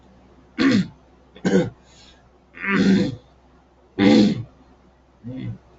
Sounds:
Throat clearing